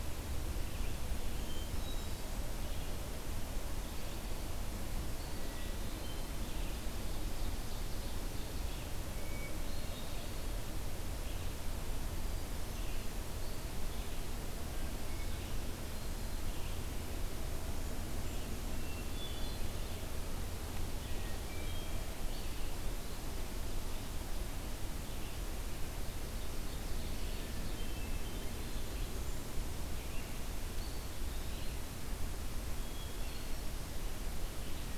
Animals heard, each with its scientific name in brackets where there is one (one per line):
Ovenbird (Seiurus aurocapilla)
Hermit Thrush (Catharus guttatus)
Eastern Wood-Pewee (Contopus virens)
Red-eyed Vireo (Vireo olivaceus)